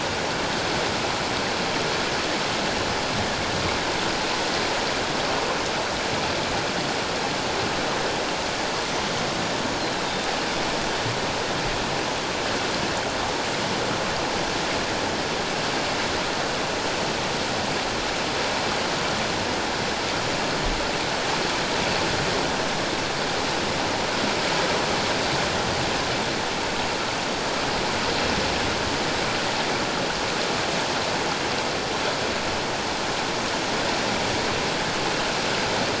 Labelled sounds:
2.9	3.2	Pacific white-sided dolphin, 5.0 to 5.1 kHz
10.0	10.3	Pacific white-sided dolphin, 3.6 to 3.8 kHz

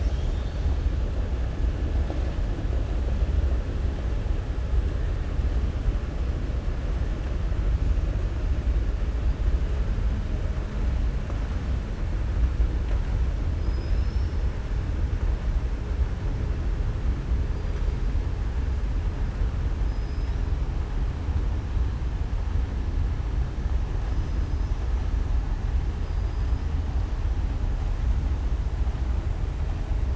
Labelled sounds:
13.5	14.4	killer whale, southern resident, 4.0 to 5.8 kHz
19.8	20.4	killer whale, southern resident, 5.0 to 5.9 kHz
26.0	26.6	killer whale, southern resident, 4.8 to 5.2 kHz

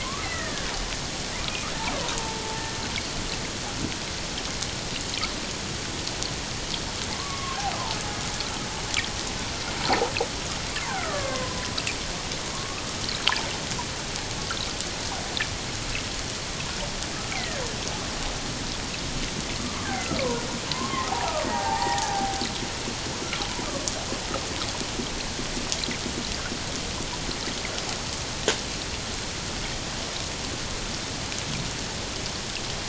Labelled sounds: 0.0	0.7	killer whale, Bigg's (transient), 0.97 to 2.2 kHz
7.1	7.6	killer whale, Bigg's (transient), 1.0 to 1.2 kHz
10.9	11.6	killer whale, Bigg's (transient), 0.97 to 2.2 kHz
12.5	12.8	killer whale, Bigg's (transient), 0.94 to 1.3 kHz
17.3	17.6	killer whale, Bigg's (transient), 1.5 to 2.4 kHz
19.6	22.4	killer whale, Bigg's (transient), 0.78 to 7.5 kHz

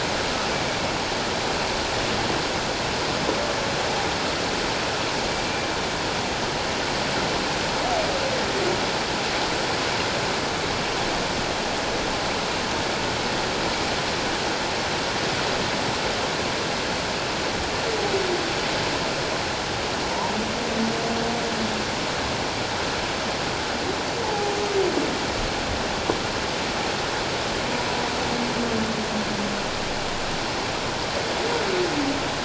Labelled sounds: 24.2	24.5	humpback whale, 0.78 to 0.91 kHz

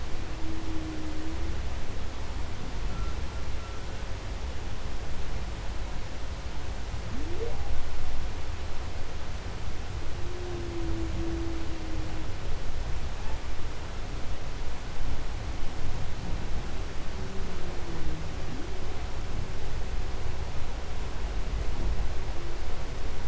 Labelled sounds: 0.0	1.7	humpback whale, 0.17 to 0.56 kHz
2.7	4.4	humpback whale, 1.1 to 1.6 kHz
6.8	8.0	humpback whale, 0.04 to 1.2 kHz
9.9	12.4	humpback whale, 0.13 to 0.87 kHz
12.9	14.0	humpback whale, 0.52 to 2.9 kHz
16.9	19.1	humpback whale, 0.19 to 0.76 kHz

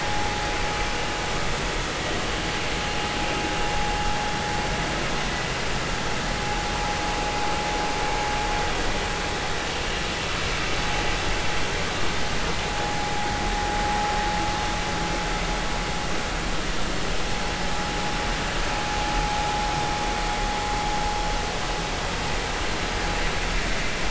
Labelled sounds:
12.8	13.1	vessel noise, 0.80 to 0.86 kHz

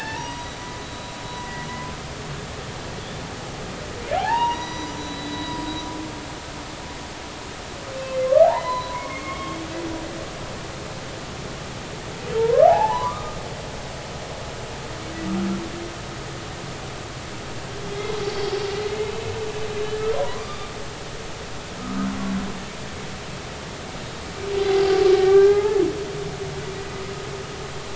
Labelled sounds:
1.2	1.9	humpback whale, 0.96 to 2.1 kHz
4.2	5.6	humpback whale, 0.80 to 6.0 kHz
8.2	9.6	humpback whale, 0.80 to 4.1 kHz
12.4	13.4	humpback whale, 0.80 to 1.8 kHz
18.2	18.5	humpback whale, 4.5 to 4.6 kHz
20.1	20.7	humpback whale, 0.90 to 4.9 kHz
25.2	25.8	humpback whale, 0.80 to 1.8 kHz

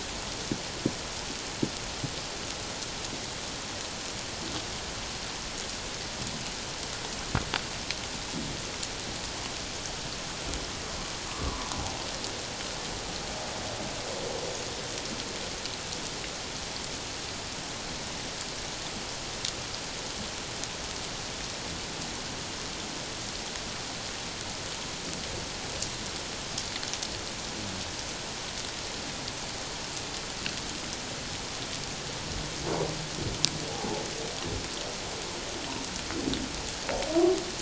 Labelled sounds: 11.3	11.7	humpback whale, 0.94 to 1.2 kHz
33.7	34.0	humpback whale, 0.78 to 0.94 kHz

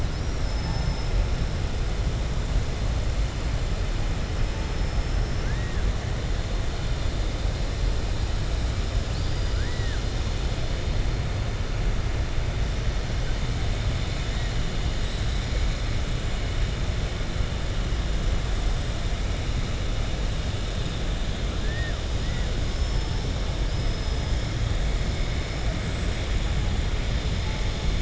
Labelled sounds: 0.0	1.1	killer whale, southern resident, 4.5 to 5.7 kHz
5.3	5.8	killer whale, southern resident, 0.88 to 1.9 kHz
15.0	15.7	killer whale, southern resident, 3.4 to 4.9 kHz
21.6	22.0	killer whale, southern resident, 1.1 to 1.9 kHz
22.7	24.5	killer whale, southern resident, 4.6 to 6.3 kHz

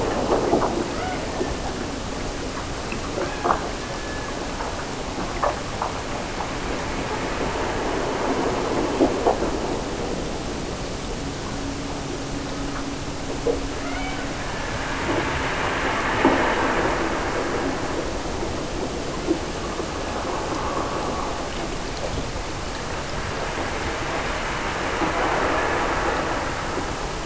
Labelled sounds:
0.8	1.9	killer whale, Bigg's (transient), Gulf of Alaska transient, 0.41 to 3.1 kHz
3.1	4.7	killer whale, Bigg's (transient), Gulf of Alaska transient, 1.2 to 2.7 kHz
13.7	15.1	killer whale, Bigg's (transient), Gulf of Alaska transient, 0.46 to 3.2 kHz

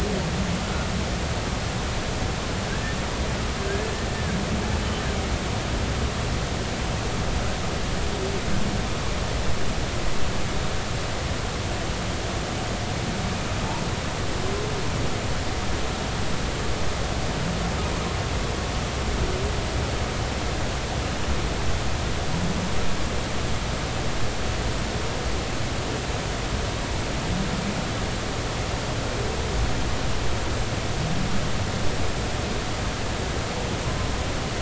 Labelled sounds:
2.7	3.0	humpback whale, 1.5 to 1.9 kHz

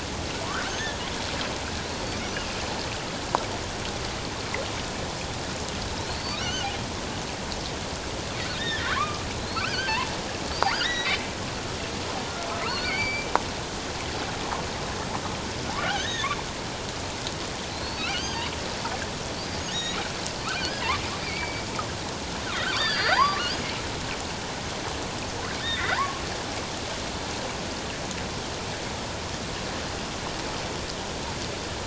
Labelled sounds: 0.4	0.8	killer whale, offshore, 0.91 to 1.7 kHz
6.0	6.7	killer whale, offshore, 1.4 to 4.6 kHz
8.5	11.2	killer whale, offshore, 1.0 to 5.0 kHz
12.5	13.3	killer whale, offshore, 0.97 to 4.8 kHz
15.8	16.4	killer whale, offshore, 1.3 to 6.5 kHz
17.7	18.5	killer whale, offshore, 1.4 to 6.5 kHz
19.3	20.8	killer whale, offshore, 1.0 to 6.8 kHz
21.2	21.7	killer whale, offshore, 2.1 to 4.7 kHz
22.5	23.7	killer whale, offshore, 0.78 to 5.1 kHz
25.6	26.2	killer whale, offshore, 0.88 to 2.1 kHz

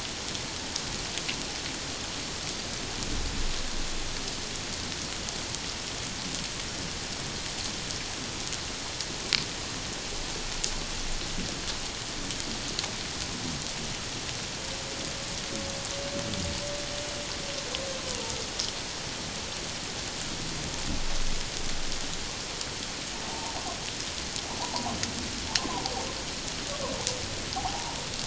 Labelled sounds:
18.0	18.3	humpback whale, 0.84 to 1.0 kHz
23.3	23.6	humpback whale, 0.78 to 1.1 kHz
24.6	24.9	humpback whale, 0.78 to 1.1 kHz
27.5	28.0	humpback whale, 0.78 to 0.97 kHz

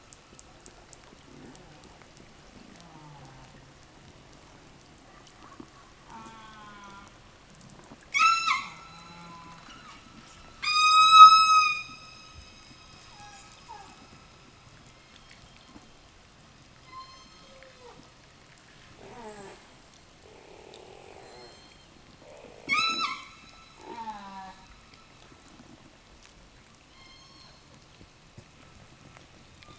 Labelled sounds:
1.2	2.2	killer whale, southern resident, call S04, 0 to 2.4 kHz
2.5	3.7	killer whale, southern resident, call S04, 0 to 3.3 kHz
5.9	7.2	killer whale, southern resident, call S04, 0 to 3.8 kHz
7.8	14.3	killer whale, southern resident, 0 to 8.0 kHz
14.7	16.4	killer whale, southern resident, 1.5 to 5.9 kHz
16.7	18.3	killer whale, southern resident, 0 to 8.0 kHz
18.9	19.7	killer whale, southern resident, call S04, 0 to 8.0 kHz
21.1	22.1	killer whale, southern resident, 0.65 to 8.0 kHz
22.5	23.3	killer whale, southern resident, 0.94 to 8.0 kHz
23.6	25.0	killer whale, southern resident, call S04, 0 to 3.7 kHz
26.8	27.7	killer whale, southern resident, 0 to 8.0 kHz
29.3	29.7	killer whale, southern resident, 0 to 6.4 kHz

